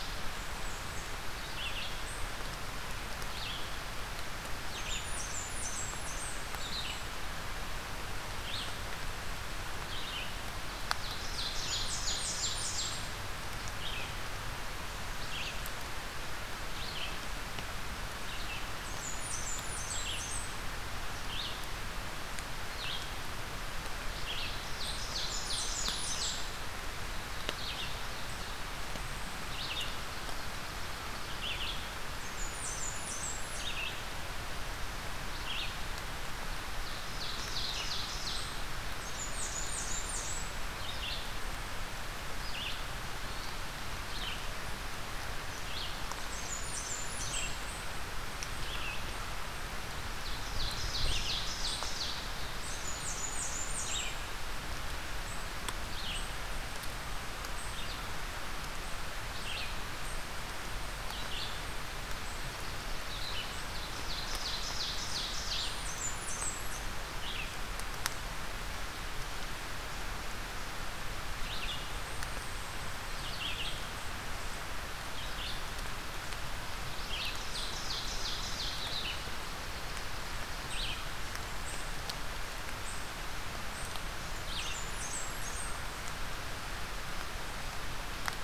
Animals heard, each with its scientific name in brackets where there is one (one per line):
Blackburnian Warbler (Setophaga fusca)
Red-eyed Vireo (Vireo olivaceus)
Ovenbird (Seiurus aurocapilla)
unidentified call